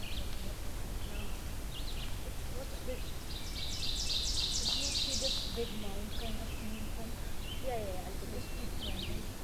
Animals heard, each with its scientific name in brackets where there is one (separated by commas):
Red-eyed Vireo (Vireo olivaceus), Ovenbird (Seiurus aurocapilla)